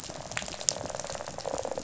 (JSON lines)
{"label": "biophony, rattle response", "recorder": "SoundTrap 500"}